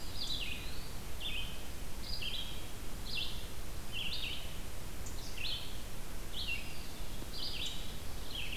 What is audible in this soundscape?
Eastern Wood-Pewee, Red-eyed Vireo